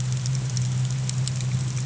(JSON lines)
{"label": "anthrophony, boat engine", "recorder": "HydroMoth"}